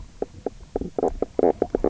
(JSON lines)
{"label": "biophony, knock croak", "recorder": "SoundTrap 300"}